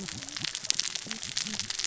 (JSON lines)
{"label": "biophony, cascading saw", "recorder": "SoundTrap 600 or HydroMoth"}